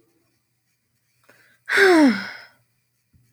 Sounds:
Sigh